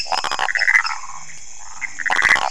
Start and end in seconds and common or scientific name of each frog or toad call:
0.0	0.9	lesser tree frog
0.0	1.2	waxy monkey tree frog
0.9	1.0	Pithecopus azureus
1.6	2.5	waxy monkey tree frog
1.8	1.9	Pithecopus azureus